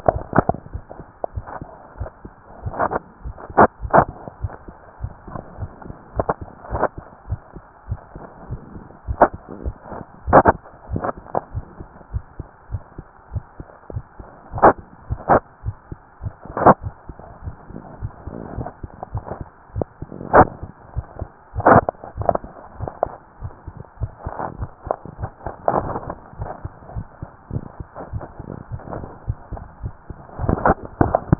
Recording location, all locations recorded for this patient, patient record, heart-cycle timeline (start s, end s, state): tricuspid valve (TV)
aortic valve (AV)+pulmonary valve (PV)+tricuspid valve (TV)+mitral valve (MV)
#Age: Child
#Sex: Male
#Height: 133.0 cm
#Weight: 33.1 kg
#Pregnancy status: False
#Murmur: Absent
#Murmur locations: nan
#Most audible location: nan
#Systolic murmur timing: nan
#Systolic murmur shape: nan
#Systolic murmur grading: nan
#Systolic murmur pitch: nan
#Systolic murmur quality: nan
#Diastolic murmur timing: nan
#Diastolic murmur shape: nan
#Diastolic murmur grading: nan
#Diastolic murmur pitch: nan
#Diastolic murmur quality: nan
#Outcome: Normal
#Campaign: 2015 screening campaign
0.00	7.04	unannotated
7.04	7.30	diastole
7.30	7.44	S1
7.44	7.54	systole
7.54	7.62	S2
7.62	7.90	diastole
7.90	8.02	S1
8.02	8.12	systole
8.12	8.20	S2
8.20	8.48	diastole
8.48	8.62	S1
8.62	8.70	systole
8.70	8.80	S2
8.80	9.06	diastole
9.06	9.18	S1
9.18	9.31	systole
9.31	9.38	S2
9.38	9.63	diastole
9.63	9.76	S1
9.76	9.90	systole
9.90	9.98	S2
9.98	10.26	diastole
10.26	10.34	S1
10.34	10.51	systole
10.51	10.60	S2
10.60	10.90	diastole
10.90	11.04	S1
11.04	11.16	systole
11.16	11.22	S2
11.22	11.54	diastole
11.54	11.66	S1
11.66	11.78	systole
11.78	11.88	S2
11.88	12.14	diastole
12.14	12.24	S1
12.24	12.36	systole
12.36	12.46	S2
12.46	12.70	diastole
12.70	12.84	S1
12.84	12.96	systole
12.96	13.04	S2
13.04	13.32	diastole
13.32	13.44	S1
13.44	13.56	systole
13.56	13.66	S2
13.66	13.94	diastole
13.94	14.04	S1
14.04	14.18	systole
14.18	14.26	S2
14.26	14.51	diastole
14.51	14.63	S1
14.63	14.77	systole
14.77	14.84	S2
14.84	15.10	diastole
15.10	15.22	S1
15.22	15.28	systole
15.28	15.42	S2
15.42	15.66	diastole
15.66	15.76	S1
15.76	15.88	systole
15.88	15.98	S2
15.98	16.22	diastole
16.22	31.39	unannotated